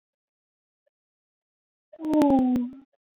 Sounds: Sigh